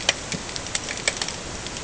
{"label": "ambient", "recorder": "HydroMoth"}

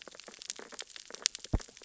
{"label": "biophony, sea urchins (Echinidae)", "recorder": "SoundTrap 600 or HydroMoth"}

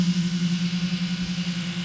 {"label": "anthrophony, boat engine", "recorder": "SoundTrap 500"}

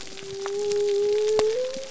{"label": "biophony", "recorder": "SoundTrap 300"}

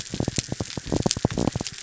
{"label": "biophony", "recorder": "SoundTrap 300"}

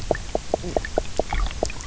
{"label": "biophony, knock croak", "recorder": "SoundTrap 300"}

